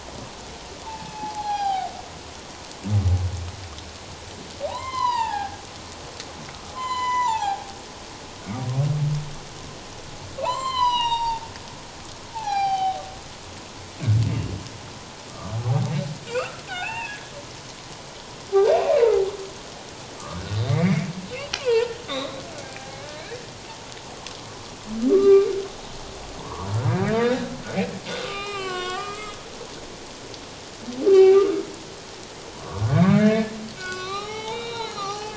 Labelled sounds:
0.9	1.9	humpback whale, 0.78 to 5.0 kHz
4.7	5.6	humpback whale, 0.78 to 5.3 kHz
6.7	7.7	humpback whale, 0.78 to 7.4 kHz
10.4	11.5	humpback whale, 0.78 to 7.5 kHz
12.3	13.0	humpback whale, 0.78 to 6.0 kHz
15.3	17.2	humpback whale, 0.78 to 2.8 kHz
20.2	21.1	humpback whale, 1.1 to 2.3 kHz
21.5	23.3	humpback whale, 0.84 to 4.1 kHz
25.1	25.5	humpback whale, 1.1 to 1.2 kHz
26.4	27.5	humpback whale, 0.84 to 3.8 kHz
28.2	29.4	humpback whale, 0.78 to 4.1 kHz
31.1	31.6	humpback whale, 0.78 to 2.8 kHz
32.5	35.3	humpback whale, 0.78 to 5.8 kHz

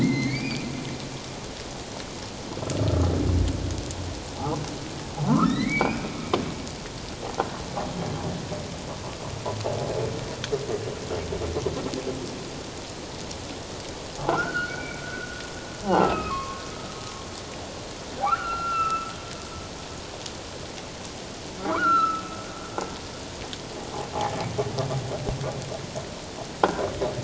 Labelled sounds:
0.0	0.7	humpback whale, 1.9 to 4.9 kHz
2.8	3.1	humpback whale, 1.2 to 1.4 kHz
4.3	4.6	humpback whale, 0.78 to 1.4 kHz
5.3	6.1	humpback whale, 0.84 to 4.2 kHz
14.3	15.4	humpback whale, 1.3 to 4.5 kHz
15.8	16.1	croaking sound likely from a nearby submerged object, 0.78 to 1.1 kHz
16.0	16.6	humpback whale, 1.0 to 2.8 kHz
18.2	19.1	humpback whale, 0.94 to 2.9 kHz
21.6	22.2	humpback whale, 0.94 to 2.8 kHz

